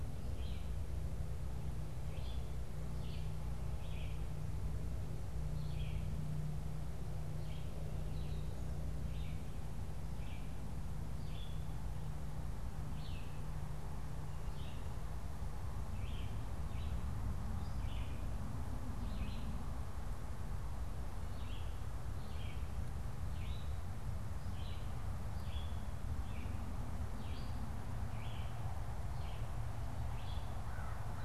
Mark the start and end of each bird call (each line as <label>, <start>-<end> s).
Red-eyed Vireo (Vireo olivaceus), 0.0-6.2 s
Red-eyed Vireo (Vireo olivaceus), 7.2-31.2 s
American Crow (Corvus brachyrhynchos), 30.4-31.2 s